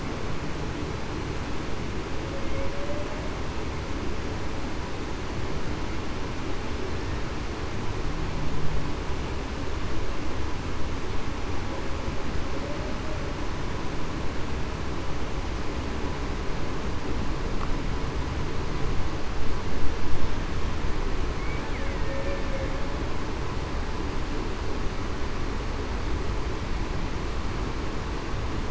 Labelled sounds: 2.7	3.0	humpback whale, 0.52 to 0.61 kHz
21.9	22.4	killer whale, Bigg's (transient), 1.8 to 1.9 kHz

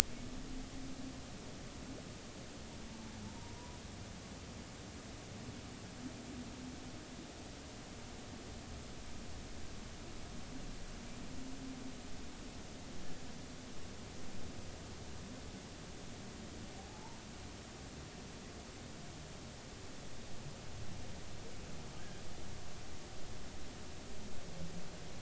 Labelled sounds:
3.2	3.5	humpback whale, 0.83 to 0.99 kHz
16.8	17.2	humpback whale, 0.80 to 1.0 kHz

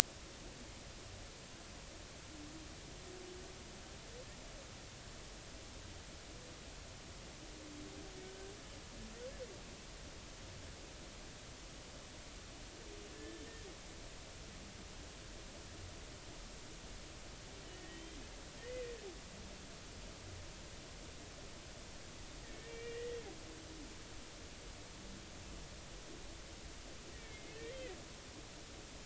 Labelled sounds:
13.1	13.4	humpback whale, 1.7 to 1.8 kHz
17.7	18.8	humpback whale, 1.8 to 3.3 kHz
22.4	23.2	humpback whale, 1.7 to 2.5 kHz
27.1	27.8	humpback whale, 1.7 to 2.4 kHz

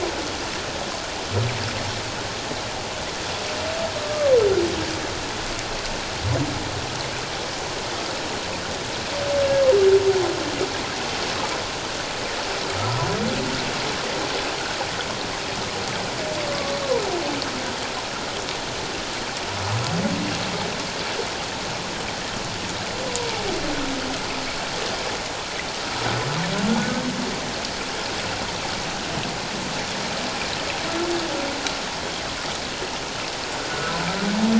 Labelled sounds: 4.0	4.3	humpback whale, 1.1 to 1.2 kHz
33.7	34.0	humpback whale, 1.3 to 1.6 kHz

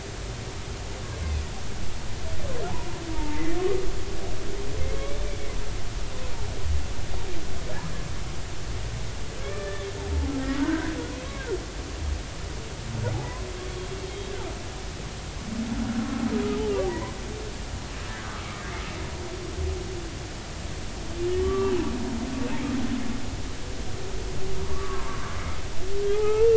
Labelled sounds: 3.1	3.6	humpback whale, 0.86 to 2.1 kHz
5.0	5.3	humpback whale, 3.2 to 3.6 kHz
9.4	10.9	humpback whale, 1.4 to 2.4 kHz
13.6	14.3	humpback whale, 3.2 to 3.8 kHz
16.0	16.2	humpback whale, 1.3 to 1.4 kHz
16.9	17.2	humpback whale, 0.90 to 1.1 kHz
21.4	21.8	humpback whale, 1.1 to 2.8 kHz
24.6	25.3	humpback whale, 1.0 to 1.3 kHz
26.1	26.5	humpback whale, 0.80 to 2.8 kHz

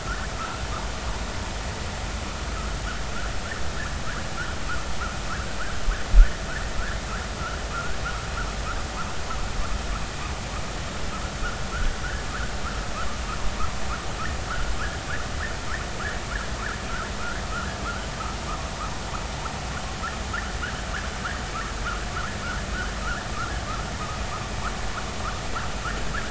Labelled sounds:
7.7	8.0	vessel noise, 1.2 to 1.7 kHz

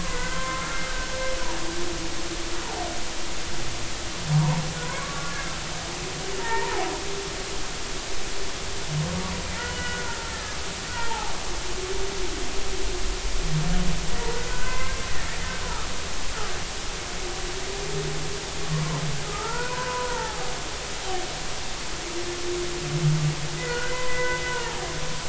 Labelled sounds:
0.0	0.8	humpback whale, 0.93 to 2.2 kHz
5.0	5.6	humpback whale, 0.99 to 1.8 kHz
6.4	6.9	humpback whale, 0.80 to 1.9 kHz
9.6	11.3	humpback whale, 0.80 to 3.0 kHz
14.5	15.0	humpback whale, 0.96 to 2.1 kHz
19.3	20.5	humpback whale, 0.80 to 2.0 kHz
23.6	24.9	humpback whale, 0.80 to 2.1 kHz

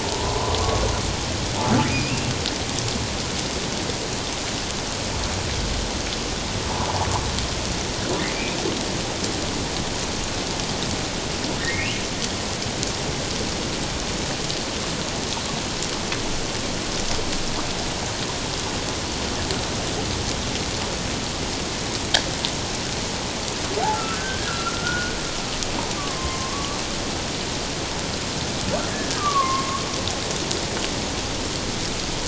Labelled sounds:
0.0	0.8	humpback whale, 0.81 to 1.2 kHz
1.9	2.3	humpback whale, 2.2 to 2.8 kHz
11.6	12.0	humpback whale, 1.7 to 3.1 kHz
23.9	25.2	humpback whale, 1.2 to 1.7 kHz
26.0	26.8	humpback whale, 1.0 to 1.2 kHz
29.2	29.8	humpback whale, 1.0 to 2.2 kHz

